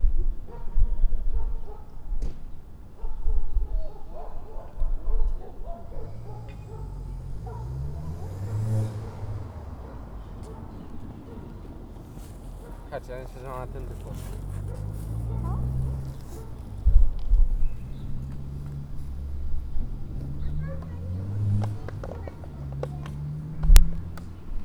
Are the people in a library?
no